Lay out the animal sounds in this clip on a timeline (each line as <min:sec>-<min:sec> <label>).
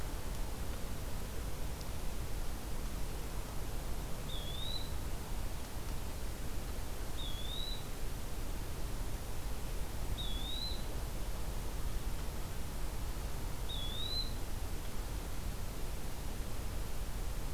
0:04.2-0:05.0 Eastern Wood-Pewee (Contopus virens)
0:07.1-0:07.9 Eastern Wood-Pewee (Contopus virens)
0:10.1-0:10.8 Eastern Wood-Pewee (Contopus virens)
0:13.6-0:14.4 Eastern Wood-Pewee (Contopus virens)